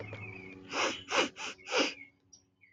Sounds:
Sniff